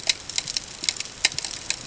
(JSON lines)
{"label": "ambient", "recorder": "HydroMoth"}